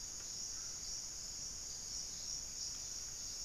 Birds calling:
unidentified bird

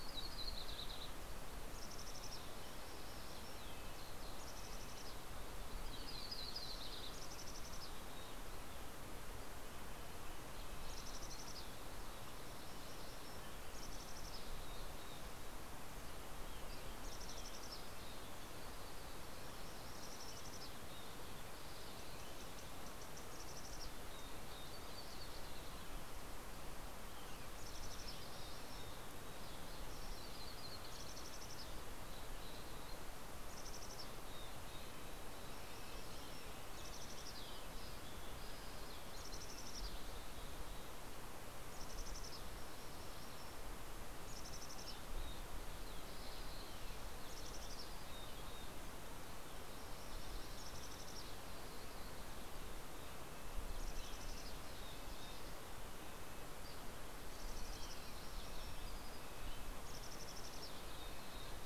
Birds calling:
Mountain Chickadee (Poecile gambeli), Yellow-rumped Warbler (Setophaga coronata), Green-tailed Towhee (Pipilo chlorurus), Mountain Quail (Oreortyx pictus), Red-breasted Nuthatch (Sitta canadensis)

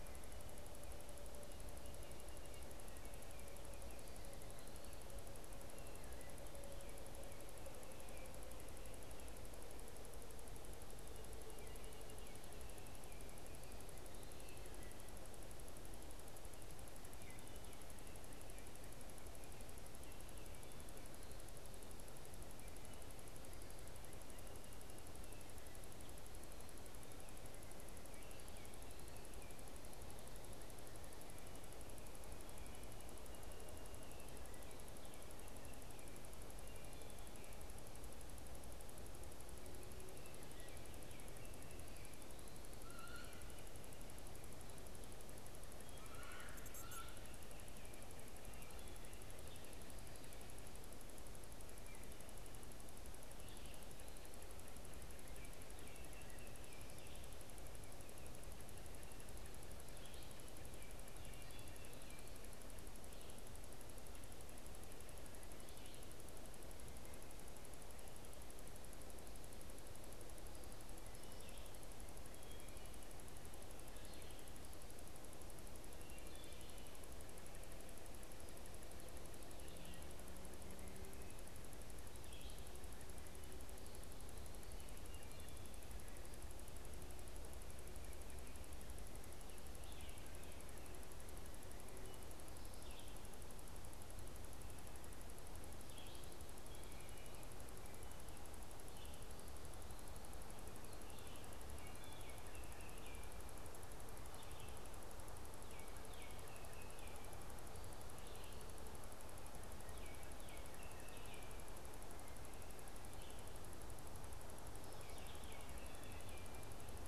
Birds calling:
Wood Thrush (Hylocichla mustelina), Red-eyed Vireo (Vireo olivaceus), Baltimore Oriole (Icterus galbula)

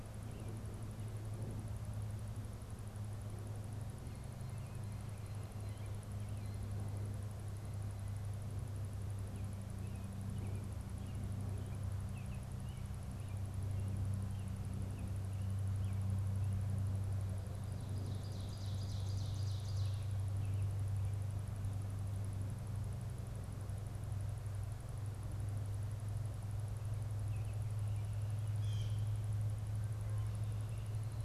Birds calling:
American Robin (Turdus migratorius), Ovenbird (Seiurus aurocapilla), Blue Jay (Cyanocitta cristata)

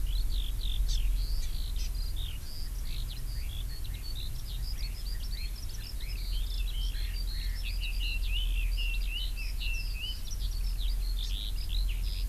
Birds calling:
Hawaii Amakihi (Chlorodrepanis virens), Red-billed Leiothrix (Leiothrix lutea), Eurasian Skylark (Alauda arvensis)

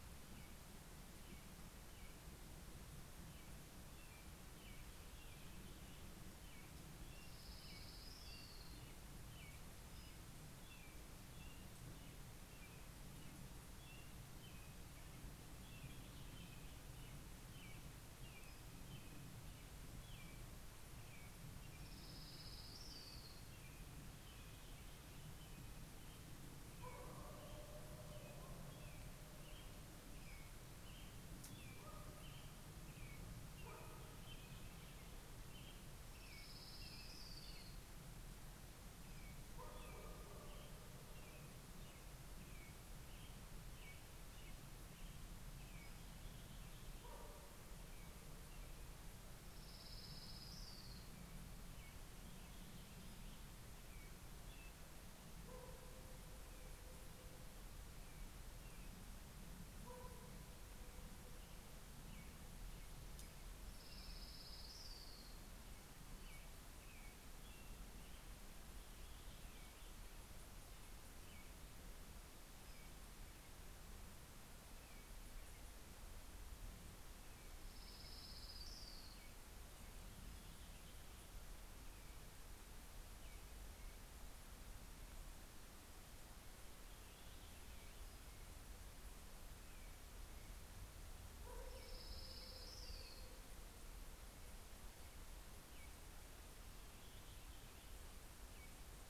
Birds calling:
American Robin (Turdus migratorius), Orange-crowned Warbler (Leiothlypis celata)

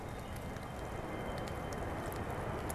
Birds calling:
Wood Thrush (Hylocichla mustelina), Blue-headed Vireo (Vireo solitarius)

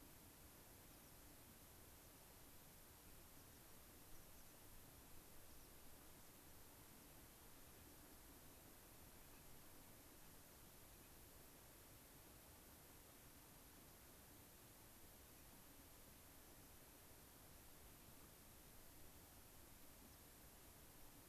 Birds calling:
unidentified bird, American Pipit (Anthus rubescens)

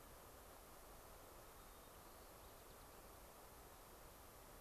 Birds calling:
White-crowned Sparrow (Zonotrichia leucophrys)

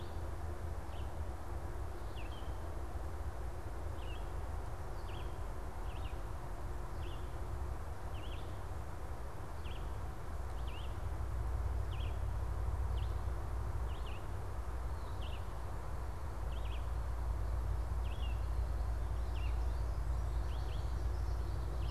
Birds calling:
unidentified bird, Red-eyed Vireo (Vireo olivaceus)

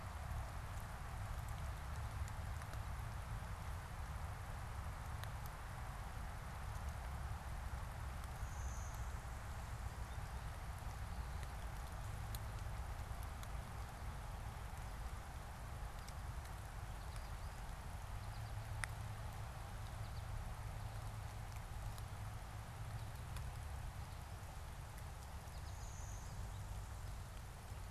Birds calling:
American Goldfinch (Spinus tristis), Blue-winged Warbler (Vermivora cyanoptera)

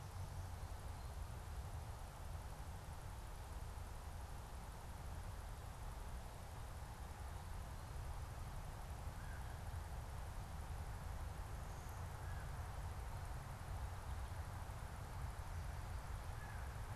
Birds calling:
American Crow (Corvus brachyrhynchos)

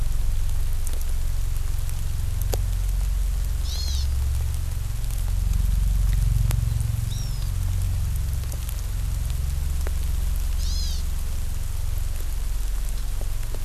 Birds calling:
Hawaiian Hawk (Buteo solitarius)

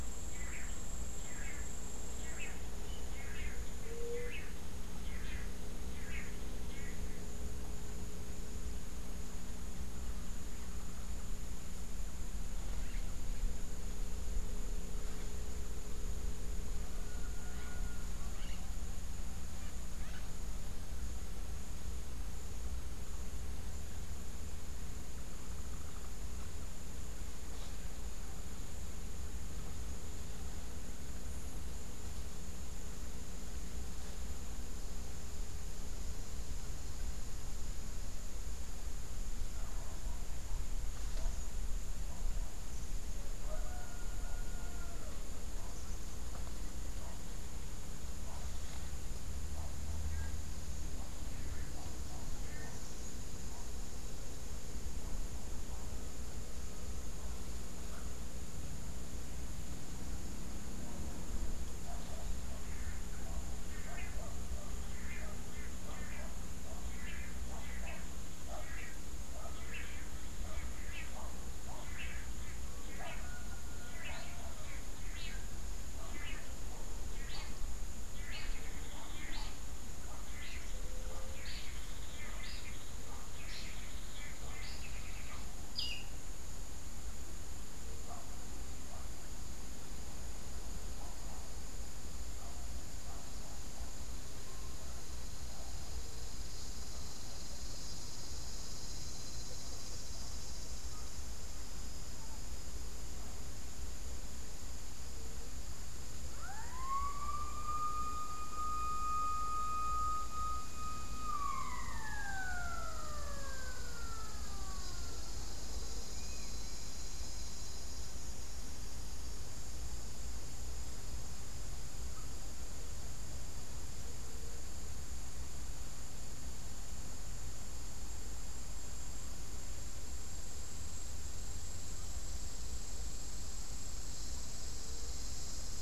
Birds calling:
unidentified bird, Long-tailed Manakin (Chiroxiphia linearis), White-tipped Dove (Leptotila verreauxi)

